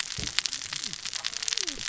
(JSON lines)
{"label": "biophony, cascading saw", "recorder": "SoundTrap 600 or HydroMoth"}